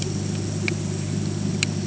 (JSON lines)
{"label": "anthrophony, boat engine", "recorder": "HydroMoth"}